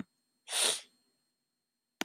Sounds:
Sniff